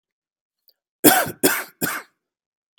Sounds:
Cough